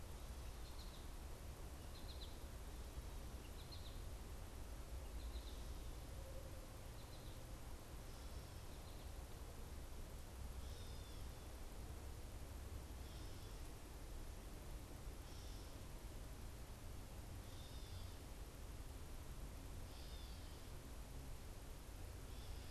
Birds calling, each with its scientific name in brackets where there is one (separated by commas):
Gray Catbird (Dumetella carolinensis), American Goldfinch (Spinus tristis)